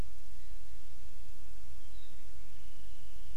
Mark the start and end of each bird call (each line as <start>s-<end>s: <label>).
0.3s-0.6s: Iiwi (Drepanis coccinea)
1.8s-2.2s: Apapane (Himatione sanguinea)